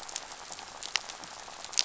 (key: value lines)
label: biophony, rattle
recorder: SoundTrap 500